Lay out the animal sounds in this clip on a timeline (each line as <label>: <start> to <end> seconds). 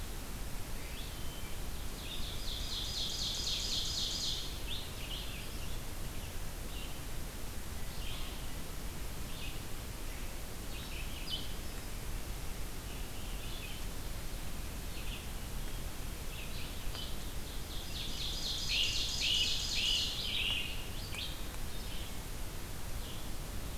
Red-eyed Vireo (Vireo olivaceus): 0.0 to 23.8 seconds
Hermit Thrush (Catharus guttatus): 1.0 to 1.7 seconds
Ovenbird (Seiurus aurocapilla): 1.8 to 4.7 seconds
Ovenbird (Seiurus aurocapilla): 17.3 to 20.4 seconds
Great Crested Flycatcher (Myiarchus crinitus): 18.5 to 20.7 seconds